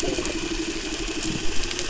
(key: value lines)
label: anthrophony, boat engine
recorder: SoundTrap 300